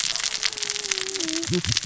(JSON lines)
{"label": "biophony, cascading saw", "recorder": "SoundTrap 600 or HydroMoth"}